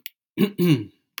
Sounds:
Throat clearing